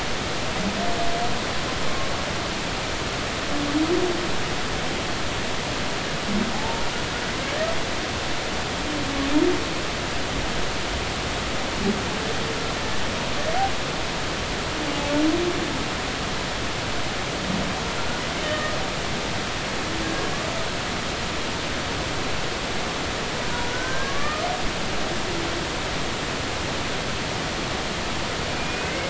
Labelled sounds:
6.5	6.8	humpback whale, 0.80 to 0.96 kHz
18.4	18.7	humpback whale, 1.8 to 1.9 kHz
23.7	24.4	humpback whale, 0.99 to 1.7 kHz
28.5	29.0	humpback whale, 2.0 to 2.6 kHz

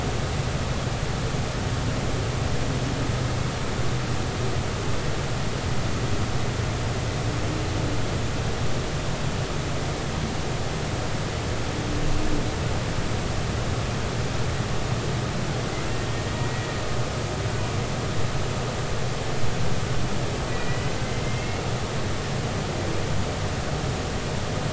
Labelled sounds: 20.5	21.0	humpback whale, 1.9 to 2.1 kHz
21.2	21.7	humpback whale, 2.0 to 2.8 kHz

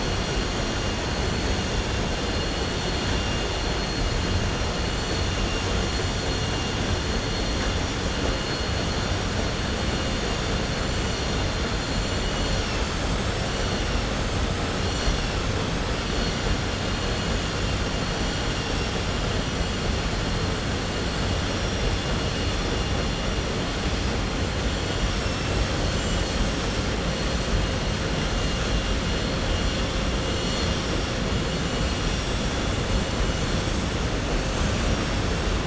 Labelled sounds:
25.8	26.6	vessel noise, 5.9 to 7.9 kHz

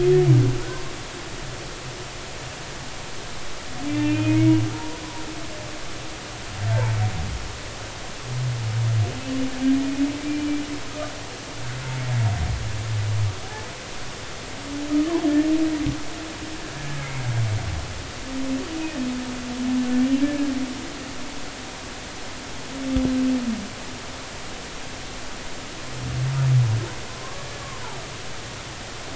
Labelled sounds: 0.5	0.8	humpback whale, 1.3 to 1.6 kHz
3.9	5.0	humpback whale, 0.90 to 3.1 kHz
9.8	10.5	humpback whale, 2.3 to 2.6 kHz
10.9	11.1	humpback whale, 1.2 to 1.4 kHz
13.4	13.7	humpback whale, 0.80 to 0.93 kHz
14.9	15.2	humpback whale, 0.93 to 1.3 kHz
17.0	17.2	humpback whale, 2.0 to 2.3 kHz
20.2	20.5	humpback whale, 1.6 to 1.8 kHz

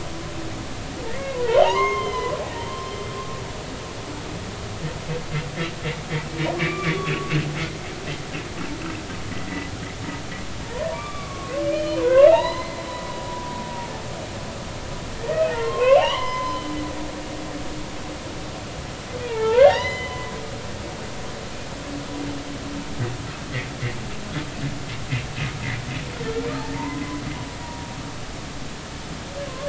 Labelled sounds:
1.1	2.3	humpback whale, 0.80 to 6.4 kHz
6.6	7.2	humpback whale, 1.0 to 3.6 kHz
10.6	13.5	humpback whale, 0.80 to 4.3 kHz
15.2	16.6	humpback whale, 0.80 to 3.3 kHz
19.2	20.2	humpback whale, 0.80 to 5.1 kHz
26.8	27.2	humpback whale, 0.86 to 1.1 kHz
27.6	27.9	humpback whale, 0.90 to 0.99 kHz

